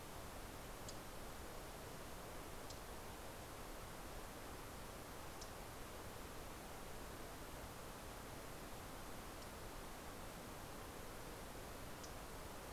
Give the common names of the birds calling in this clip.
MacGillivray's Warbler